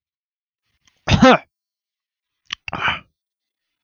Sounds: Throat clearing